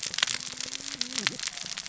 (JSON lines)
{"label": "biophony, cascading saw", "recorder": "SoundTrap 600 or HydroMoth"}